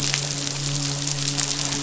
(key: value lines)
label: biophony, midshipman
recorder: SoundTrap 500